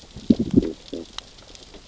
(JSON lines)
{"label": "biophony, growl", "recorder": "SoundTrap 600 or HydroMoth"}